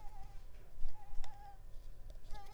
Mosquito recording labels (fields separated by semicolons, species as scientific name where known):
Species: Mansonia africanus; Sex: female; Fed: unfed; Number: one; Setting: cup